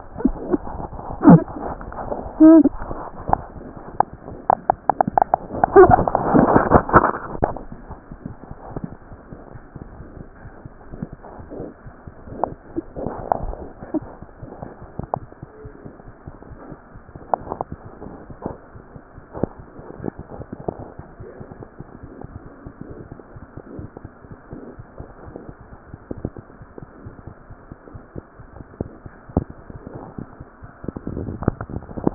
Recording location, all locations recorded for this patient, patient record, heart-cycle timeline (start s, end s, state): aortic valve (AV)
aortic valve (AV)+pulmonary valve (PV)
#Age: Infant
#Sex: Male
#Height: 58.0 cm
#Weight: 6.0 kg
#Pregnancy status: False
#Murmur: Absent
#Murmur locations: nan
#Most audible location: nan
#Systolic murmur timing: nan
#Systolic murmur shape: nan
#Systolic murmur grading: nan
#Systolic murmur pitch: nan
#Systolic murmur quality: nan
#Diastolic murmur timing: nan
#Diastolic murmur shape: nan
#Diastolic murmur grading: nan
#Diastolic murmur pitch: nan
#Diastolic murmur quality: nan
#Outcome: Normal
#Campaign: 2015 screening campaign
0.00	24.12	unannotated
24.12	24.30	diastole
24.30	24.40	S1
24.40	24.50	systole
24.50	24.60	S2
24.60	24.74	diastole
24.74	24.88	S1
24.88	24.98	systole
24.98	25.08	S2
25.08	25.26	diastole
25.26	25.36	S1
25.36	25.46	systole
25.46	25.56	S2
25.56	25.69	diastole
25.69	25.80	S1
25.80	25.90	systole
25.90	26.00	S2
26.00	26.16	diastole
26.16	26.25	S1
26.25	26.36	systole
26.36	26.46	S2
26.46	26.58	diastole
26.58	26.68	S1
26.68	26.76	systole
26.76	26.82	S2
26.82	27.04	diastole
27.04	27.14	S1
27.14	27.26	systole
27.26	27.34	S2
27.34	27.48	diastole
27.48	27.60	S1
27.60	27.66	systole
27.66	27.77	S2
27.77	27.89	diastole
27.89	28.02	S1
28.02	28.16	systole
28.16	28.26	S2
28.26	28.46	diastole
28.46	32.14	unannotated